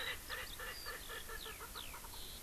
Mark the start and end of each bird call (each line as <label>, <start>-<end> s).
Erckel's Francolin (Pternistis erckelii), 0.0-2.2 s
Eurasian Skylark (Alauda arvensis), 0.0-2.4 s